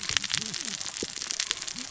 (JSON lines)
{"label": "biophony, cascading saw", "recorder": "SoundTrap 600 or HydroMoth"}